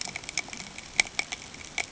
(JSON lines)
{"label": "ambient", "recorder": "HydroMoth"}